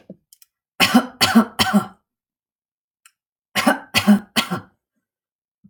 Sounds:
Cough